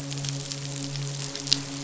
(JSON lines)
{"label": "biophony, midshipman", "recorder": "SoundTrap 500"}